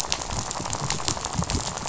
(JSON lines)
{"label": "biophony, rattle", "recorder": "SoundTrap 500"}